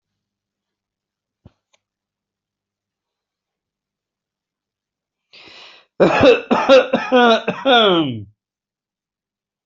{"expert_labels": [{"quality": "ok", "cough_type": "unknown", "dyspnea": false, "wheezing": false, "stridor": false, "choking": false, "congestion": false, "nothing": true, "diagnosis": "healthy cough", "severity": "pseudocough/healthy cough"}, {"quality": "good", "cough_type": "dry", "dyspnea": false, "wheezing": false, "stridor": false, "choking": false, "congestion": false, "nothing": true, "diagnosis": "COVID-19", "severity": "mild"}, {"quality": "good", "cough_type": "dry", "dyspnea": false, "wheezing": false, "stridor": false, "choking": false, "congestion": false, "nothing": true, "diagnosis": "healthy cough", "severity": "pseudocough/healthy cough"}, {"quality": "good", "cough_type": "dry", "dyspnea": false, "wheezing": false, "stridor": false, "choking": false, "congestion": false, "nothing": true, "diagnosis": "healthy cough", "severity": "pseudocough/healthy cough"}], "age": 58, "gender": "male", "respiratory_condition": false, "fever_muscle_pain": false, "status": "COVID-19"}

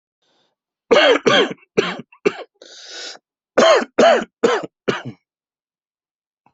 {"expert_labels": [{"quality": "good", "cough_type": "dry", "dyspnea": false, "wheezing": false, "stridor": false, "choking": false, "congestion": false, "nothing": true, "diagnosis": "upper respiratory tract infection", "severity": "mild"}], "age": 30, "gender": "male", "respiratory_condition": false, "fever_muscle_pain": false, "status": "symptomatic"}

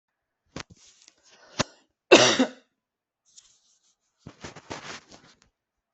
{"expert_labels": [{"quality": "good", "cough_type": "dry", "dyspnea": false, "wheezing": false, "stridor": false, "choking": false, "congestion": false, "nothing": true, "diagnosis": "healthy cough", "severity": "pseudocough/healthy cough"}], "age": 27, "gender": "male", "respiratory_condition": false, "fever_muscle_pain": false, "status": "symptomatic"}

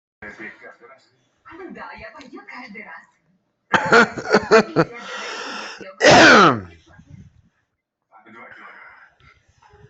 {"expert_labels": [{"quality": "ok", "cough_type": "dry", "dyspnea": false, "wheezing": false, "stridor": false, "choking": false, "congestion": false, "nothing": true, "diagnosis": "lower respiratory tract infection", "severity": "mild"}], "age": 43, "gender": "female", "respiratory_condition": true, "fever_muscle_pain": true, "status": "COVID-19"}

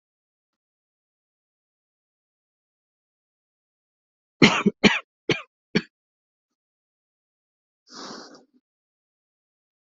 {"expert_labels": [{"quality": "good", "cough_type": "dry", "dyspnea": false, "wheezing": false, "stridor": false, "choking": false, "congestion": false, "nothing": true, "diagnosis": "upper respiratory tract infection", "severity": "mild"}], "age": 30, "gender": "male", "respiratory_condition": true, "fever_muscle_pain": false, "status": "symptomatic"}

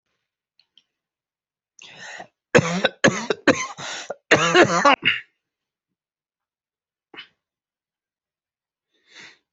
{"expert_labels": [{"quality": "good", "cough_type": "dry", "dyspnea": false, "wheezing": true, "stridor": false, "choking": false, "congestion": false, "nothing": false, "diagnosis": "obstructive lung disease", "severity": "mild"}], "gender": "female", "respiratory_condition": true, "fever_muscle_pain": false, "status": "symptomatic"}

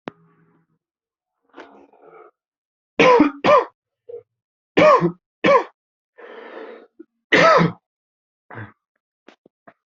{"expert_labels": [{"quality": "good", "cough_type": "dry", "dyspnea": false, "wheezing": false, "stridor": false, "choking": false, "congestion": false, "nothing": true, "diagnosis": "COVID-19", "severity": "mild"}], "age": 30, "gender": "male", "respiratory_condition": false, "fever_muscle_pain": false, "status": "symptomatic"}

